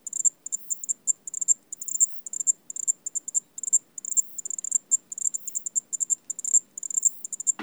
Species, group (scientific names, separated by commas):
Zvenella geniculata, Orthoptera